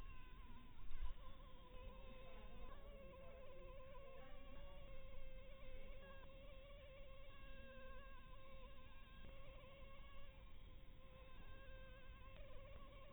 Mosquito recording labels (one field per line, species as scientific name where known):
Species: Anopheles harrisoni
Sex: female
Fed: blood-fed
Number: one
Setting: cup